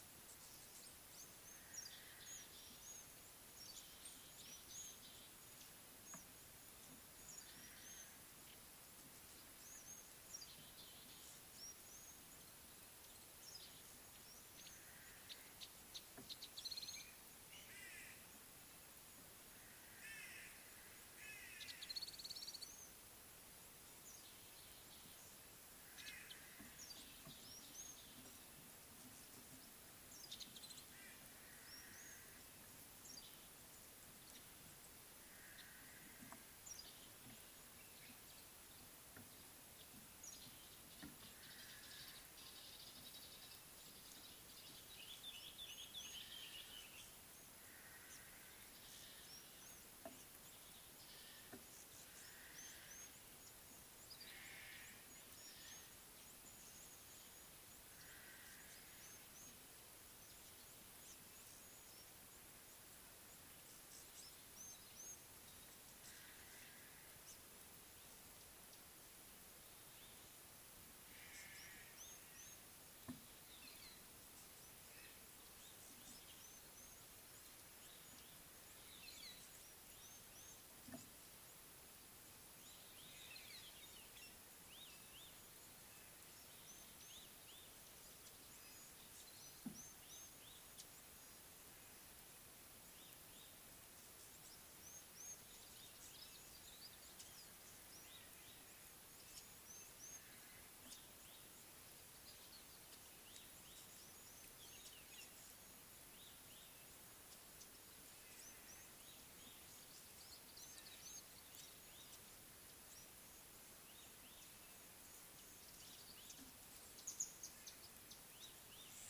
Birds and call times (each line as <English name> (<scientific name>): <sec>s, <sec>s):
Somali Tit (Melaniparus thruppi): 1.8s, 2.4s, 33.1s, 36.8s, 40.3s
African Gray Flycatcher (Bradornis microrhynchus): 7.9s, 11.7s, 32.0s, 53.0s, 65.1s, 72.0s, 80.5s, 86.8s, 89.9s, 99.8s
Northern Crombec (Sylvietta brachyura): 15.7s, 16.7s, 22.2s, 30.4s, 42.9s
White-bellied Go-away-bird (Corythaixoides leucogaster): 20.2s
Common Bulbul (Pycnonotus barbatus): 45.4s
White-headed Buffalo-Weaver (Dinemellia dinemelli): 79.2s
Red-backed Scrub-Robin (Cercotrichas leucophrys): 84.8s